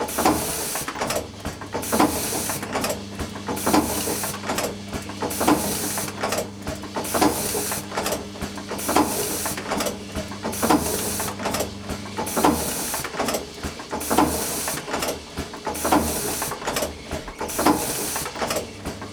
How many copies did the copy machine print?
eleven